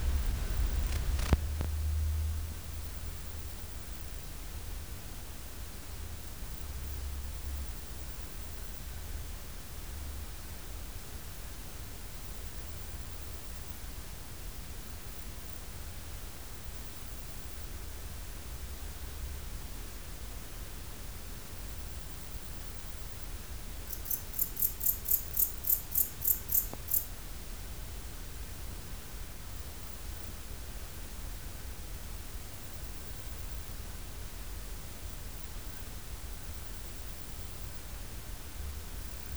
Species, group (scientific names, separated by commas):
Modestana ebneri, Orthoptera